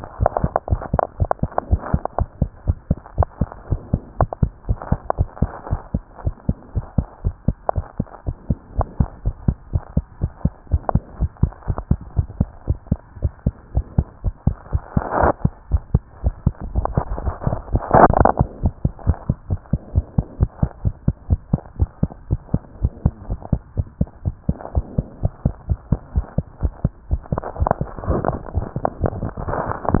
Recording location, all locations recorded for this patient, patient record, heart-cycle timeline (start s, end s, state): tricuspid valve (TV)
aortic valve (AV)+pulmonary valve (PV)+tricuspid valve (TV)+mitral valve (MV)
#Age: Child
#Sex: Female
#Height: 100.0 cm
#Weight: 11.5 kg
#Pregnancy status: False
#Murmur: Absent
#Murmur locations: nan
#Most audible location: nan
#Systolic murmur timing: nan
#Systolic murmur shape: nan
#Systolic murmur grading: nan
#Systolic murmur pitch: nan
#Systolic murmur quality: nan
#Diastolic murmur timing: nan
#Diastolic murmur shape: nan
#Diastolic murmur grading: nan
#Diastolic murmur pitch: nan
#Diastolic murmur quality: nan
#Outcome: Normal
#Campaign: 2015 screening campaign
0.00	6.23	unannotated
6.23	6.34	S1
6.34	6.44	systole
6.44	6.56	S2
6.56	6.74	diastole
6.74	6.86	S1
6.86	6.94	systole
6.94	7.06	S2
7.06	7.22	diastole
7.22	7.36	S1
7.36	7.44	systole
7.44	7.56	S2
7.56	7.74	diastole
7.74	7.86	S1
7.86	7.96	systole
7.96	8.06	S2
8.06	8.26	diastole
8.26	8.36	S1
8.36	8.46	systole
8.46	8.58	S2
8.58	8.76	diastole
8.76	8.86	S1
8.86	8.96	systole
8.96	9.08	S2
9.08	9.24	diastole
9.24	9.34	S1
9.34	9.44	systole
9.44	9.56	S2
9.56	9.72	diastole
9.72	9.82	S1
9.82	9.94	systole
9.94	10.04	S2
10.04	10.20	diastole
10.20	10.32	S1
10.32	10.44	systole
10.44	10.52	S2
10.52	10.70	diastole
10.70	10.84	S1
10.84	10.92	systole
10.92	11.02	S2
11.02	11.18	diastole
11.18	11.30	S1
11.30	11.38	systole
11.38	11.54	S2
11.54	11.68	diastole
11.68	11.84	S1
11.84	11.88	systole
11.88	11.98	S2
11.98	12.16	diastole
12.16	12.30	S1
12.30	12.38	systole
12.38	12.48	S2
12.48	12.68	diastole
12.68	12.78	S1
12.78	12.88	systole
12.88	13.00	S2
13.00	13.18	diastole
13.18	13.32	S1
13.32	13.42	systole
13.42	13.54	S2
13.54	13.74	diastole
13.74	13.86	S1
13.86	13.94	systole
13.94	14.06	S2
14.06	14.24	diastole
14.24	14.34	S1
14.34	14.44	systole
14.44	14.58	S2
14.58	14.72	diastole
14.72	14.82	S1
14.82	14.92	systole
14.92	15.04	S2
15.04	15.20	diastole
15.20	15.34	S1
15.34	15.40	systole
15.40	15.52	S2
15.52	15.70	diastole
15.70	15.82	S1
15.82	15.90	systole
15.90	16.04	S2
16.04	16.24	diastole
16.24	16.34	S1
16.34	16.44	systole
16.44	16.56	S2
16.56	16.75	diastole
16.75	16.86	S1
16.86	30.00	unannotated